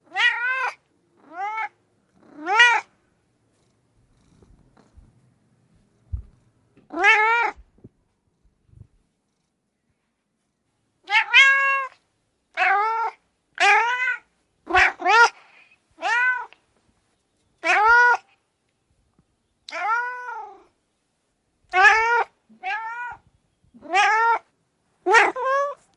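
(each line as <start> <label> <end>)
0.1 A cat yowls softly. 0.8
2.4 A cat yowls softly. 2.9
6.9 A cat yowls softly. 7.6
11.1 A cat yowls softly. 11.9
12.5 A cat yowls softly. 15.4
16.0 A cat yowls softly. 16.6
17.6 A cat yowls softly. 18.2
19.6 A cat yowls softly. 20.5
21.7 A cat yowls softly. 23.2
23.9 A cat yowls softly. 24.5
25.0 A cat is yowling softly and repeatedly. 25.8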